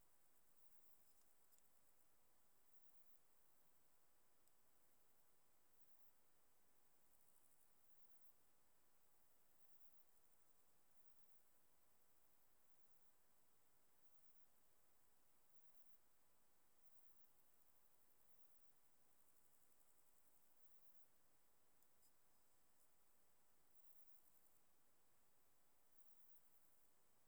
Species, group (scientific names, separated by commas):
Ephippigerida areolaria, Orthoptera